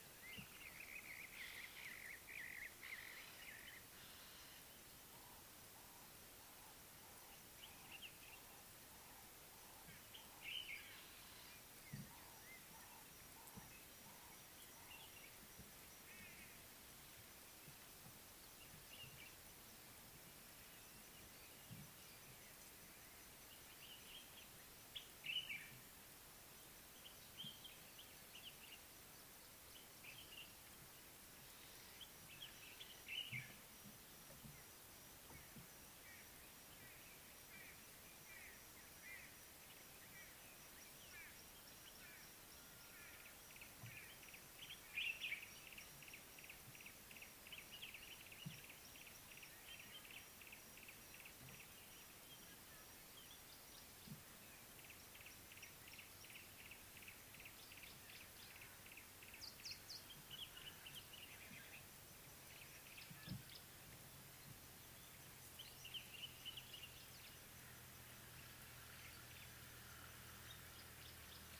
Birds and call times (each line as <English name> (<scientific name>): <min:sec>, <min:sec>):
Brown-crowned Tchagra (Tchagra australis): 0:02.0
Ring-necked Dove (Streptopelia capicola): 0:06.6
Common Bulbul (Pycnonotus barbatus): 0:10.5, 0:25.4, 0:33.2, 1:01.0, 1:06.2
White-bellied Go-away-bird (Corythaixoides leucogaster): 0:39.2
Yellow-breasted Apalis (Apalis flavida): 0:46.9, 0:57.1